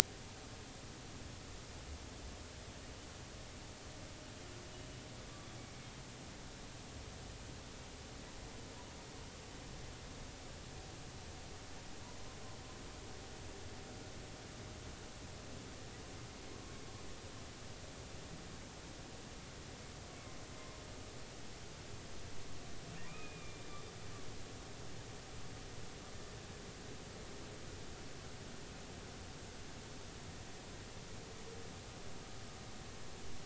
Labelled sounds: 23.1	23.8	humpback whale, 2.2 to 3.7 kHz

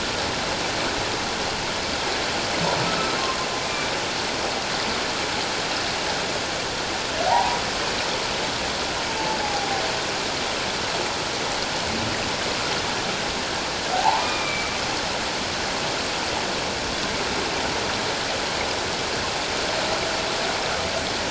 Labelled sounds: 3.6	3.9	humpback whale, 2.2 to 2.5 kHz
7.3	7.6	humpback whale, 0.78 to 1.0 kHz
9.4	9.7	humpback whale, 0.78 to 0.88 kHz
13.9	14.7	humpback whale, 0.78 to 2.5 kHz

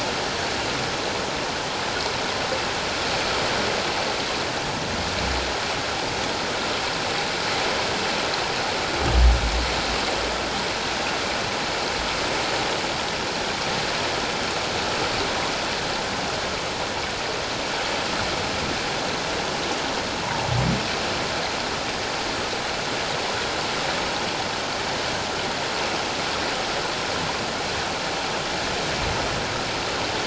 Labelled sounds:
20.2	20.5	humpback whale, 0.78 to 1.0 kHz

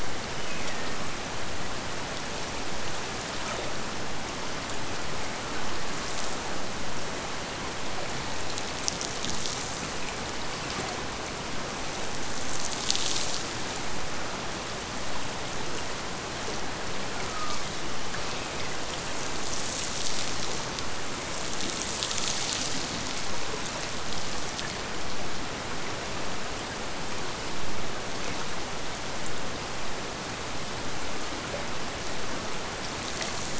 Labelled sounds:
0.1	1.1	killer whale, Bigg's (transient), Gulf of Alaska transient, 1.7 to 3.1 kHz

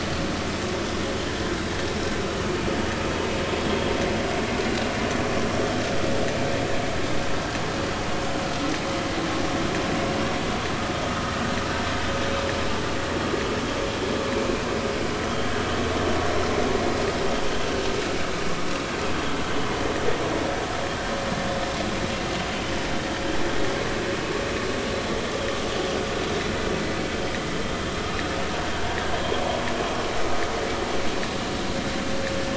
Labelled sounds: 11.1	11.3	vessel noise, 1.2 to 1.3 kHz

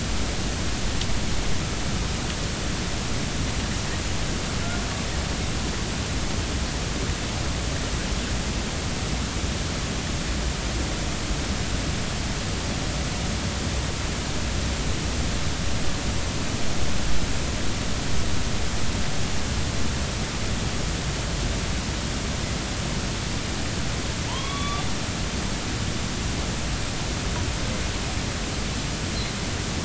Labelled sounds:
24.3	24.9	killer whale, northern resident, A clan, AB subclan, call N05, 0.83 to 3.6 kHz

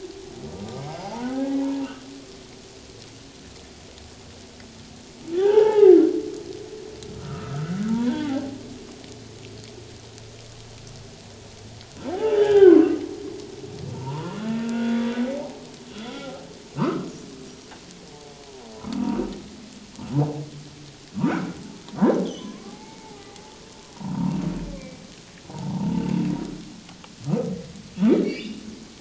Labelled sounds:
1.1	1.9	humpback whale, 0.81 to 1.7 kHz
5.3	6.0	humpback whale, 0.78 to 2.0 kHz
7.2	8.6	humpback whale, 0.78 to 1.6 kHz
12.1	13.0	humpback whale, 0.78 to 3.3 kHz
13.9	15.1	humpback whale, 0.84 to 3.5 kHz
15.4	16.4	humpback whale, 0.78 to 1.5 kHz
16.8	17.1	humpback whale, 0.88 to 1.4 kHz
18.8	19.2	humpback whale, 1.1 to 1.4 kHz
21.2	21.6	humpback whale, 1.2 to 2.3 kHz
22.2	23.6	humpback whale, 0.78 to 3.7 kHz
24.0	25.0	humpback whale, 0.88 to 2.5 kHz
28.2	28.6	humpback whale, 2.1 to 3.0 kHz

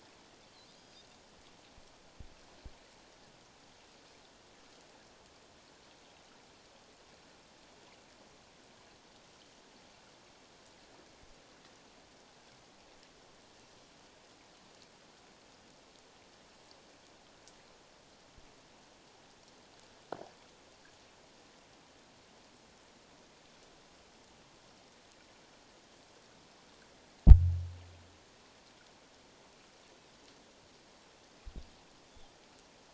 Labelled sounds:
0.7	1.1	Pacific white-sided dolphin, 4.7 to 5.0 kHz

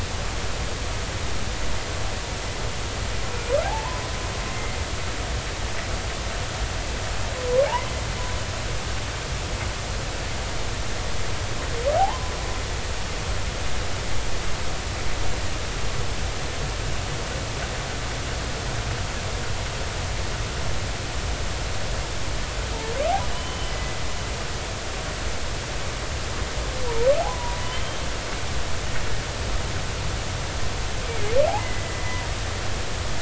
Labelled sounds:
3.3	4.0	humpback whale, 0.80 to 2.6 kHz
4.5	4.8	humpback whale, 2.0 to 2.1 kHz
12.0	12.3	humpback whale, 0.80 to 1.1 kHz
23.3	24.0	humpback whale, 2.0 to 3.2 kHz
27.2	28.0	humpback whale, 0.80 to 3.2 kHz
31.1	32.2	humpback whale, 2.0 to 2.4 kHz

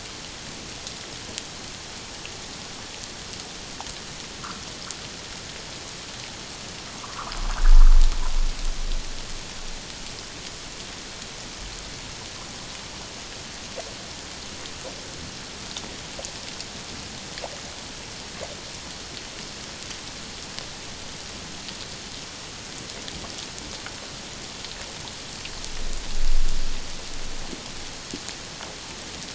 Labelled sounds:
4.4	4.6	humpback whale, 1.0 to 1.6 kHz
7.0	7.3	humpback whale, 0.91 to 1.5 kHz

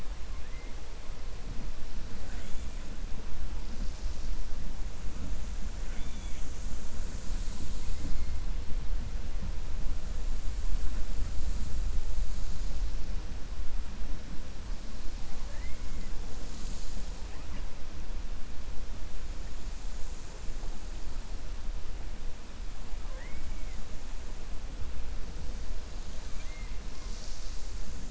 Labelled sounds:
5.8	6.5	killer whale, 1.4 to 3.6 kHz
26.2	26.7	killer whale, 1.5 to 3.3 kHz

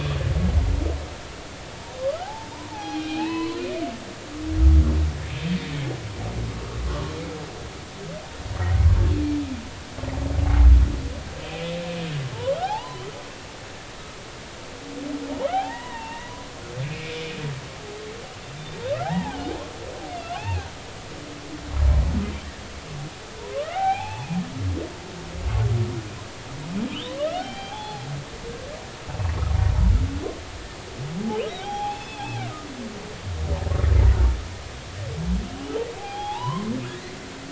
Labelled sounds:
2.0	3.7	humpback whale, 0.80 to 4.4 kHz
6.9	7.1	humpback whale, 1.0 to 1.2 kHz
11.4	13.0	humpback whale, 0.80 to 4.1 kHz
15.5	16.5	humpback whale, 0.80 to 3.2 kHz
16.8	17.2	humpback whale, 2.1 to 2.7 kHz
18.9	19.6	humpback whale, 0.80 to 2.0 kHz
20.2	20.7	humpback whale, 0.80 to 2.8 kHz
23.4	24.3	humpback whale, 0.80 to 3.3 kHz
27.4	28.0	humpback whale, 0.80 to 3.2 kHz
31.6	32.3	humpback whale, 0.80 to 5.3 kHz
36.0	36.7	humpback whale, 0.80 to 3.6 kHz

